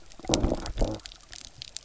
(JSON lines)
{"label": "biophony, low growl", "recorder": "SoundTrap 300"}